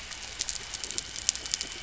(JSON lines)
{"label": "anthrophony, boat engine", "recorder": "SoundTrap 300"}